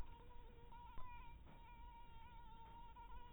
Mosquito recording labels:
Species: mosquito; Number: one; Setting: cup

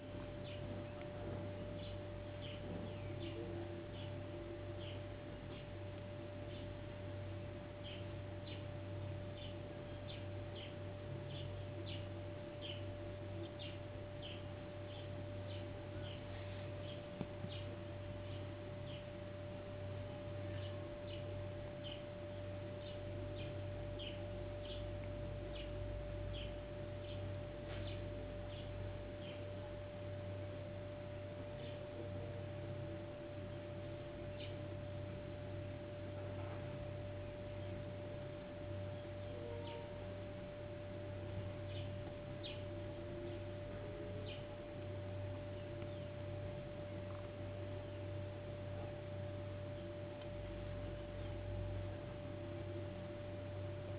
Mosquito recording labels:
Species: no mosquito; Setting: insect culture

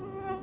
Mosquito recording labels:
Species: Anopheles quadriannulatus; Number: one; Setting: insect culture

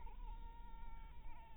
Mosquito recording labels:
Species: mosquito; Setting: cup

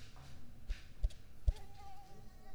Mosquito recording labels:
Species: Mansonia africanus; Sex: female; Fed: unfed; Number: one; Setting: cup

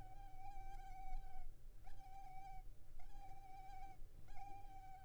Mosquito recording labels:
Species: Culex pipiens complex; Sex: female; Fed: unfed; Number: one; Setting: cup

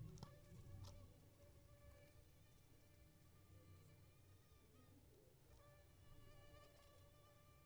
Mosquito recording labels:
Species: Aedes aegypti; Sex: female; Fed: unfed; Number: one; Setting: cup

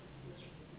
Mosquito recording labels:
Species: Anopheles gambiae s.s.; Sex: female; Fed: unfed; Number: one; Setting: insect culture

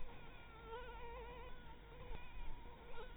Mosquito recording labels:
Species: Anopheles maculatus; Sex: female; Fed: blood-fed; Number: one; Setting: cup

